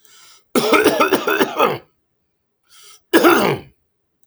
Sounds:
Cough